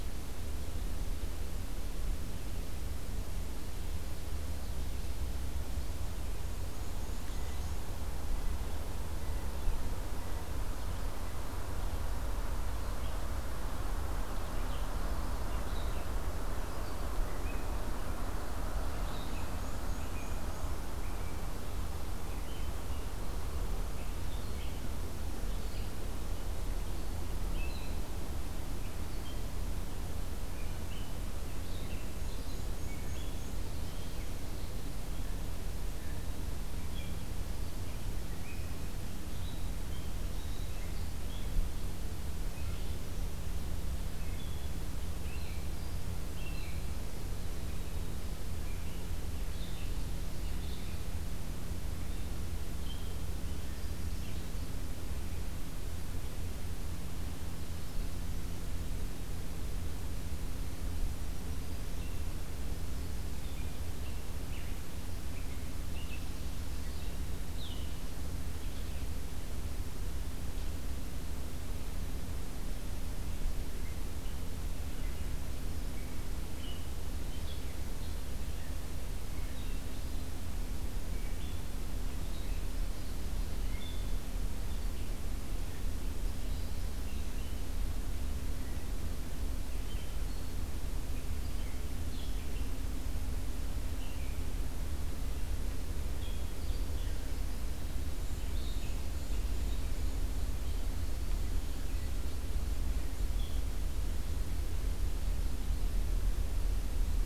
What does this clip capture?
Black-and-white Warbler, Blue Jay, Red-eyed Vireo, Black-throated Green Warbler